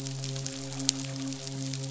{"label": "biophony, midshipman", "recorder": "SoundTrap 500"}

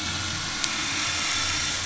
{"label": "anthrophony, boat engine", "recorder": "SoundTrap 500"}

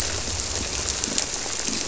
{"label": "biophony", "recorder": "SoundTrap 300"}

